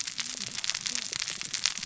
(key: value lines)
label: biophony, cascading saw
recorder: SoundTrap 600 or HydroMoth